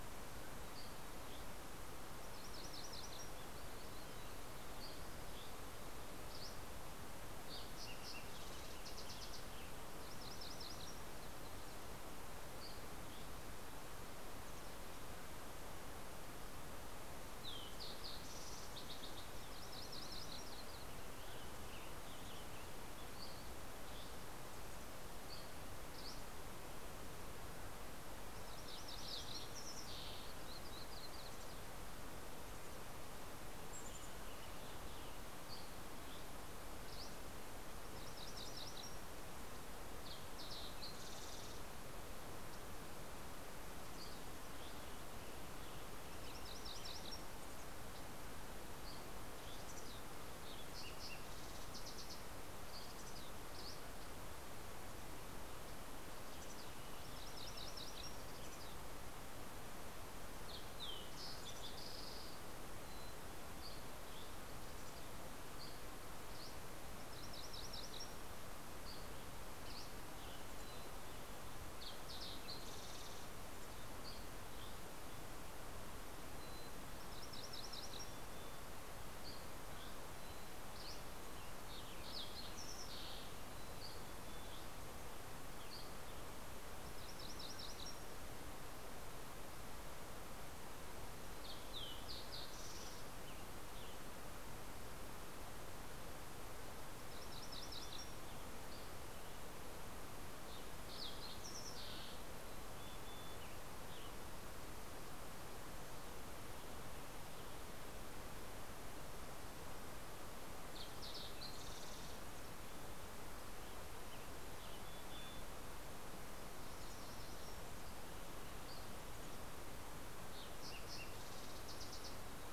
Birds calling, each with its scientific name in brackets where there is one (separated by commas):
Western Tanager (Piranga ludoviciana), Fox Sparrow (Passerella iliaca), Yellow-rumped Warbler (Setophaga coronata), Mountain Chickadee (Poecile gambeli), MacGillivray's Warbler (Geothlypis tolmiei), Dusky Flycatcher (Empidonax oberholseri)